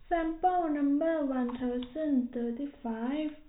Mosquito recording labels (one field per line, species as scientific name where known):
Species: no mosquito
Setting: cup